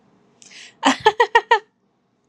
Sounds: Laughter